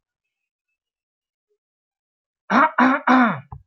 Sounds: Throat clearing